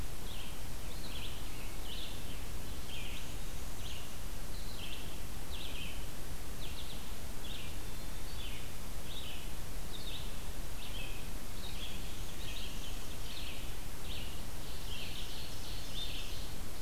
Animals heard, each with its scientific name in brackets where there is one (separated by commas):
Red-eyed Vireo (Vireo olivaceus), Ovenbird (Seiurus aurocapilla), Black-and-white Warbler (Mniotilta varia)